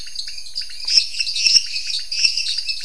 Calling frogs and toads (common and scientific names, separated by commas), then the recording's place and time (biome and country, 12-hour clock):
lesser tree frog (Dendropsophus minutus), dwarf tree frog (Dendropsophus nanus), pointedbelly frog (Leptodactylus podicipinus)
Cerrado, Brazil, 9:00pm